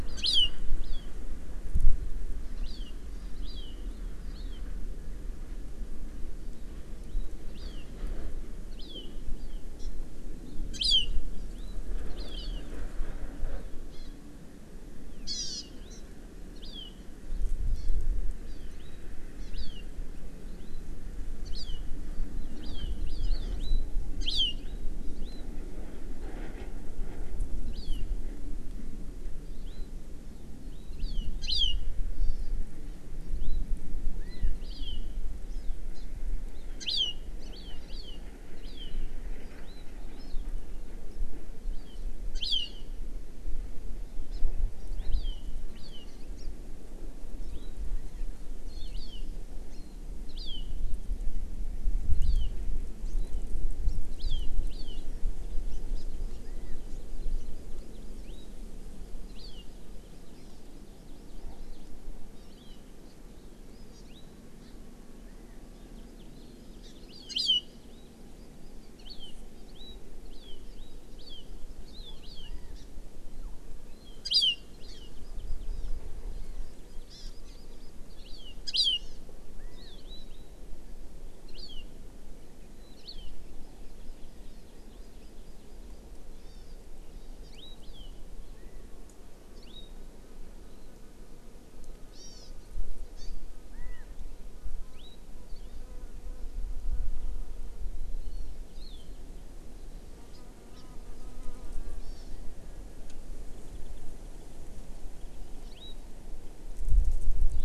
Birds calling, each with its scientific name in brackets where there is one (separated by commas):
California Quail (Callipepla californica), Hawaii Amakihi (Chlorodrepanis virens), Warbling White-eye (Zosterops japonicus)